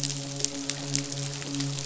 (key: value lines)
label: biophony, midshipman
recorder: SoundTrap 500